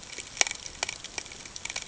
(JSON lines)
{"label": "ambient", "recorder": "HydroMoth"}